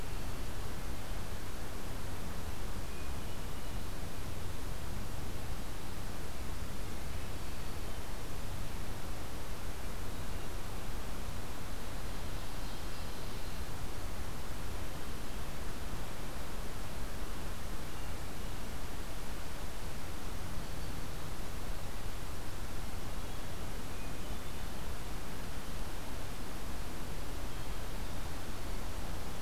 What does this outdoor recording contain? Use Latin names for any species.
Catharus guttatus, Seiurus aurocapilla